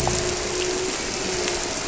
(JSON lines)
{"label": "biophony", "recorder": "SoundTrap 300"}